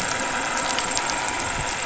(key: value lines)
label: anthrophony, boat engine
recorder: SoundTrap 500